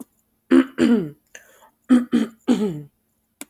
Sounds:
Throat clearing